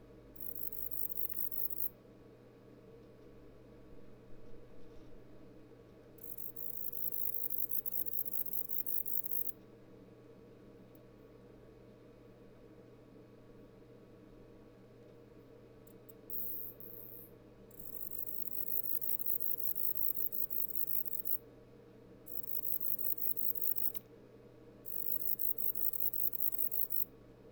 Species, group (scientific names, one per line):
Bicolorana bicolor
Orthoptera